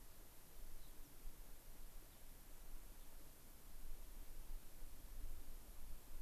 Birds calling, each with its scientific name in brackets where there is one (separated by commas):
American Pipit (Anthus rubescens), Gray-crowned Rosy-Finch (Leucosticte tephrocotis)